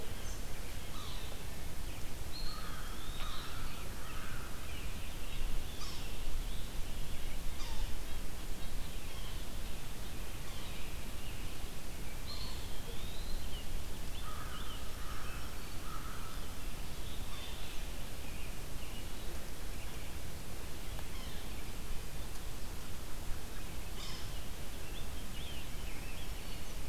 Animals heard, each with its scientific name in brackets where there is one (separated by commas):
American Robin (Turdus migratorius), American Crow (Corvus brachyrhynchos), Yellow-bellied Sapsucker (Sphyrapicus varius), Scarlet Tanager (Piranga olivacea), Red-eyed Vireo (Vireo olivaceus), Eastern Wood-Pewee (Contopus virens), Black-throated Green Warbler (Setophaga virens), White-breasted Nuthatch (Sitta carolinensis)